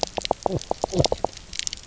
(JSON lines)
{"label": "biophony, knock croak", "recorder": "SoundTrap 300"}